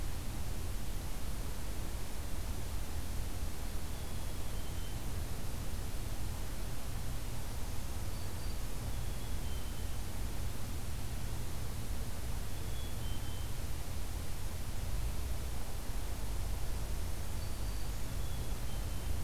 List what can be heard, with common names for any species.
Black-capped Chickadee, Black-throated Green Warbler